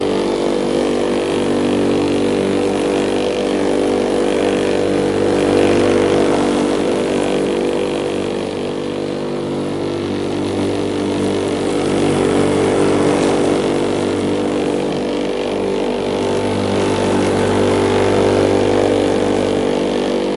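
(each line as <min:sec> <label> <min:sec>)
0:00.0 The steady sound of a lawnmower engine running continuously. 0:20.4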